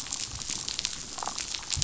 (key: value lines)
label: biophony, damselfish
recorder: SoundTrap 500